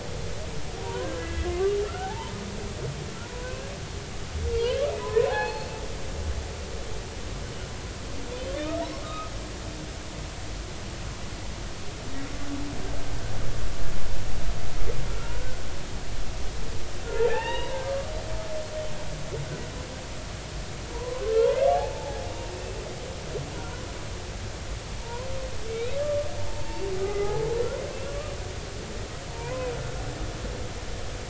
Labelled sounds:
0.8	2.3	humpback whale, 0.80 to 2.1 kHz
3.2	3.7	humpback whale, 0.93 to 2.8 kHz
5.0	5.7	humpback whale, 0.80 to 4.4 kHz
9.0	9.3	humpback whale, 1.2 to 1.3 kHz
15.2	15.6	humpback whale, 1.3 to 1.6 kHz
17.0	17.8	humpback whale, 0.80 to 3.9 kHz
20.9	21.2	humpback whale, 0.83 to 1.1 kHz
21.7	22.5	humpback whale, 0.80 to 2.8 kHz
25.0	27.5	humpback whale, 0.80 to 4.0 kHz
28.1	28.3	humpback whale, 1.1 to 1.2 kHz
29.3	29.7	humpback whale, 0.90 to 2.6 kHz

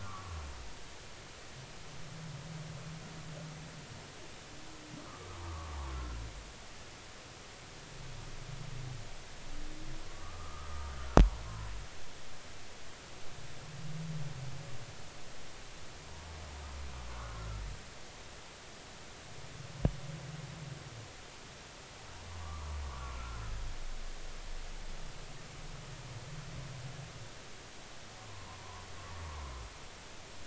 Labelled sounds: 0.0	0.3	humpback whale, 0.99 to 1.4 kHz
5.0	6.2	humpback whale, 0.99 to 1.4 kHz
10.1	10.9	humpback whale, 1.1 to 1.3 kHz
11.5	11.7	humpback whale, 0.96 to 1.1 kHz
17.1	17.6	humpback whale, 1.0 to 1.5 kHz
22.4	23.4	humpback whale, 0.93 to 1.5 kHz
28.2	28.9	humpback whale, 0.90 to 1.2 kHz
29.2	29.5	humpback whale, 0.80 to 1.2 kHz

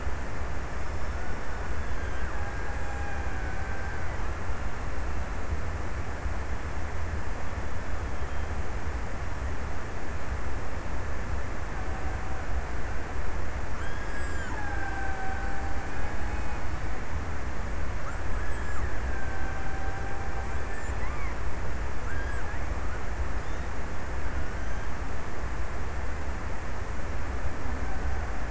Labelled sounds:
13.3	17.5	killer whale, Bigg's (transient), 0.60 to 2.0 kHz
18.4	21.8	killer whale, Bigg's (transient), 0.63 to 1.9 kHz

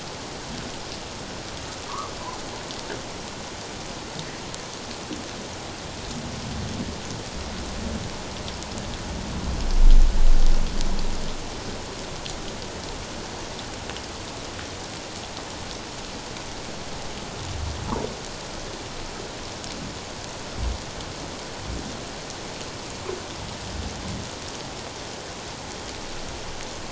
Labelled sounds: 1.9	2.1	humpback whale, 0.91 to 1.3 kHz

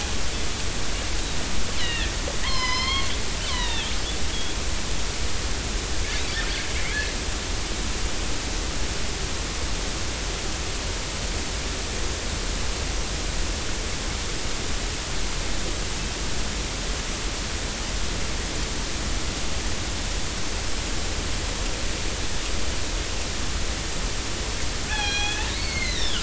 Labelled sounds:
1.8	2.1	killer whale, northern resident, 1.7 to 4.2 kHz
2.4	3.9	killer whale, northern resident, 0.86 to 5.3 kHz
4.5	4.9	killer whale, northern resident, 3.1 to 4.2 kHz
24.8	26.2	killer whale, northern resident, 1.4 to 5.9 kHz

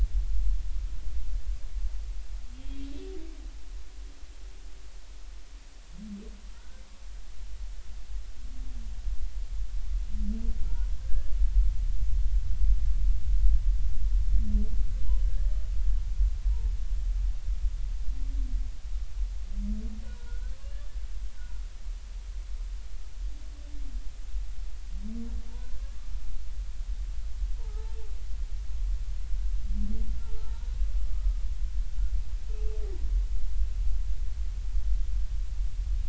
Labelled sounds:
6.5	6.8	humpback whale, 1.3 to 1.6 kHz
11.0	11.3	humpback whale, 1.5 to 1.8 kHz
15.3	15.5	humpback whale, 1.6 to 1.8 kHz
20.0	20.6	humpback whale, 1.2 to 1.6 kHz
25.5	25.8	humpback whale, 0.86 to 1.1 kHz
27.6	28.0	humpback whale, 0.80 to 0.99 kHz
30.2	31.4	humpback whale, 0.83 to 1.5 kHz

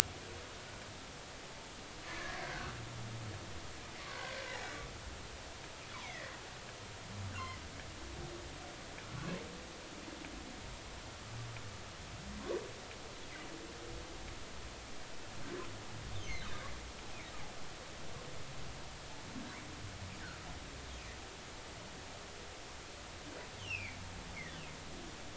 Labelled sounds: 2.1	2.7	humpback whale, 1.4 to 1.9 kHz
4.1	4.4	humpback whale, 1.5 to 1.7 kHz
6.0	6.3	humpback whale, 1.7 to 2.4 kHz
23.6	24.0	humpback whale, 2.0 to 3.5 kHz

